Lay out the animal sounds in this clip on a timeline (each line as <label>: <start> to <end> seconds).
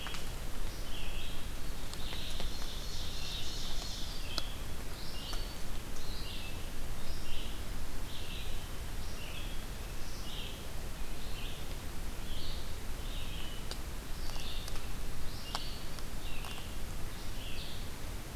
Red-eyed Vireo (Vireo olivaceus): 0.0 to 18.4 seconds
Ovenbird (Seiurus aurocapilla): 2.0 to 4.2 seconds